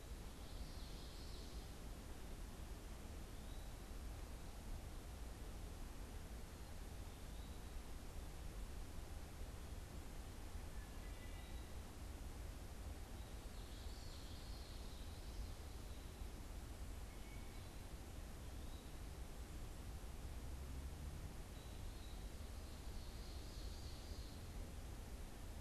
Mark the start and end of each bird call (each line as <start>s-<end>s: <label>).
0.0s-1.6s: Common Yellowthroat (Geothlypis trichas)
10.6s-11.8s: Wood Thrush (Hylocichla mustelina)
13.3s-15.3s: Common Yellowthroat (Geothlypis trichas)
16.9s-17.8s: unidentified bird
22.6s-24.6s: Ovenbird (Seiurus aurocapilla)